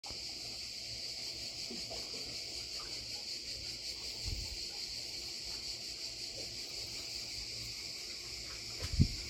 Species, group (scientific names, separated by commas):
Cicada orni, Cicadidae